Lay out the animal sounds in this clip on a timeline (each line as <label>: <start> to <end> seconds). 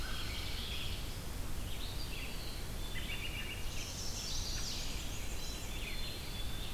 American Crow (Corvus brachyrhynchos): 0.0 to 0.5 seconds
Red-eyed Vireo (Vireo olivaceus): 0.0 to 6.7 seconds
Eastern Wood-Pewee (Contopus virens): 2.0 to 3.3 seconds
American Robin (Turdus migratorius): 2.7 to 3.8 seconds
Chestnut-sided Warbler (Setophaga pensylvanica): 3.5 to 4.9 seconds
Black-and-white Warbler (Mniotilta varia): 4.3 to 5.8 seconds
Black-capped Chickadee (Poecile atricapillus): 5.1 to 6.2 seconds
Eastern Wood-Pewee (Contopus virens): 6.0 to 6.7 seconds